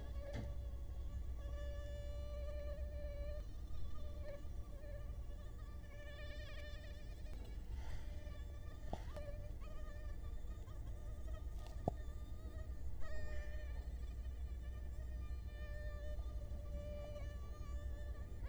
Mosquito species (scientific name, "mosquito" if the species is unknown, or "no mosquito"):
Culex quinquefasciatus